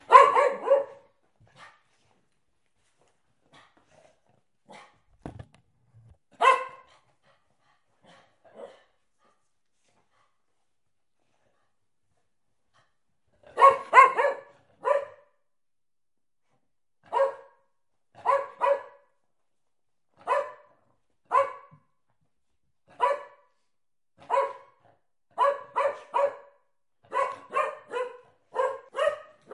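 0.0s A dog barks. 1.0s
1.5s A dog barks repeatedly in the distance. 6.2s
6.4s A dog barks. 6.7s
7.9s A dog barks in the distance. 9.2s
13.3s A dog barks repeatedly. 15.4s
16.9s A dog barks repeatedly. 29.5s

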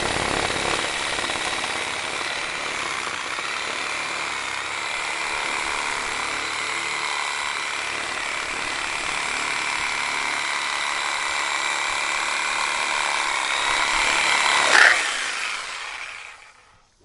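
0.0s Wood is being continuously cut with a circular saw. 15.0s
15.0s A circular saw is turning off. 16.5s

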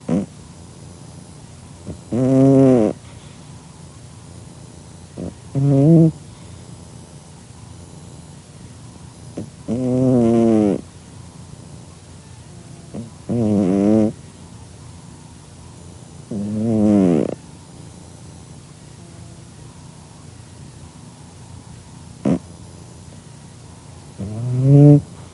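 0.0s Cat snoring. 0.3s
1.7s Cat snoring. 3.0s
5.1s Cat snoring. 6.2s
9.4s Cat snoring. 10.8s
12.9s Cat snoring. 14.2s
16.3s Cat snoring. 17.4s
22.2s Cat snoring. 22.5s
24.2s Cat snoring. 25.1s

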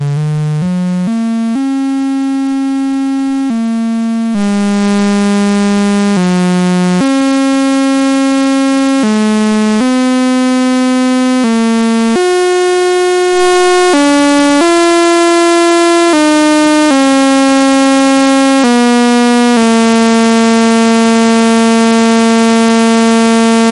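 0.0s An instrument produces a continuous noisy tone with varying intensity and volume. 23.7s

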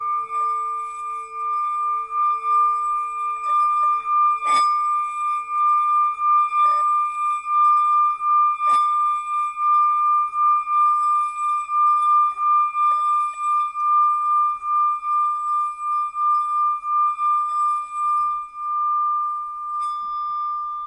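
0.0s A singing bowl is being played. 20.8s

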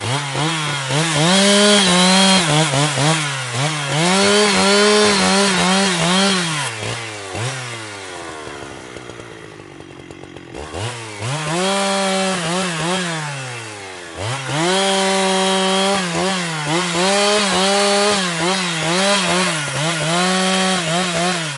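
0.0s A chainsaw is revving. 21.5s

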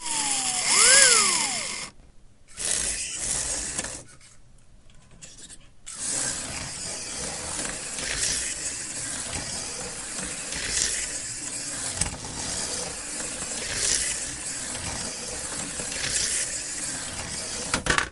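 0.0s A small electric toy car is driving around. 1.9s
2.5s A small electric toy car is driving around. 4.2s
5.8s A small electric toy car is driving around. 18.1s

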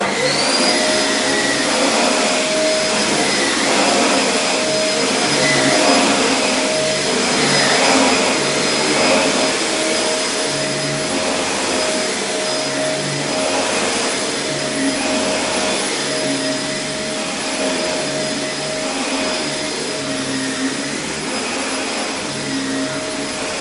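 0.0s A vacuum cleaner starts up and hums loudly. 0.8s
0.8s A vacuum cleaner hums loudly while sucking in dust. 23.6s

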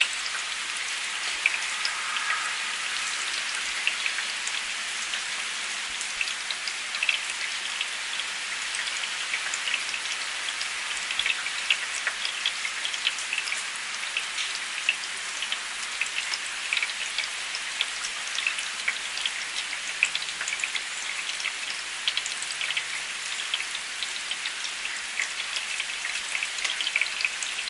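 0.0s Light rain shower with raindrops pattering softly. 27.7s

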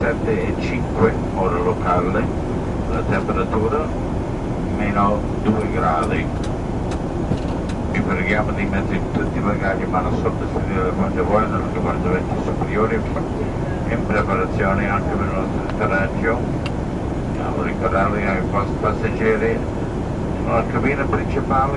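0.0s An inaudible announcement is made by a man over airplane speakers. 21.7s
0.0s The dull sound of an airplane engine working in the background. 21.8s

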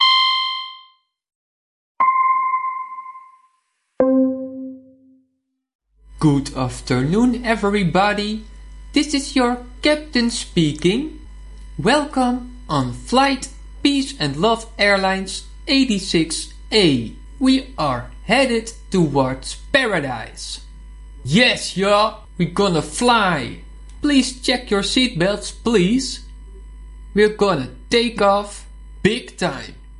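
0.0s Synthetic beeps at differing frequencies. 5.9s
6.0s A captain speaks enthusiastically into a microphone. 30.0s

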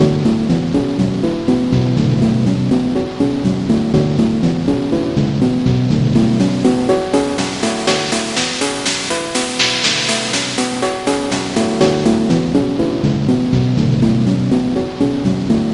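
0.0s Distorted electronic music playing. 15.7s

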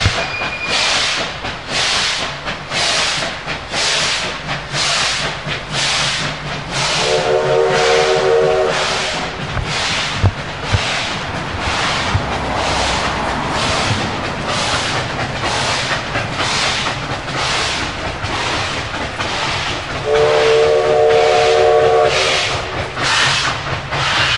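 0.0s A locomotive train arrives at the station, producing rhythmic air hissing and metal rubbing sounds. 24.4s
6.9s A locomotive train continuously blows its horn. 8.9s
9.9s Two soft clicks, similar to a pillow being tapped. 11.0s
19.9s A locomotive train continuously blows its horn. 22.6s

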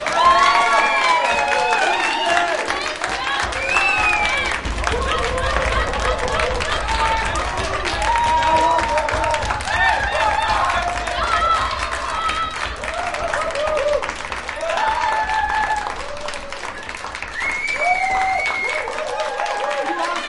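0.1s Many people are applauding rhythmically and enthusiastically. 20.3s
0.3s The audience cheers enthusiastically with shouts and strong voices. 4.3s
3.2s A woman makes cheerful vocal exclamations of praise with a lively and enthusiastic voice. 8.5s
3.6s Sharp and loud whistles come from the audience in the theater. 4.6s
11.8s A woman makes cheerful vocal exclamations of praise, her voice lively and enthusiastic. 13.1s
17.9s Sharp and loud whistles come from the audience in the theater. 19.2s

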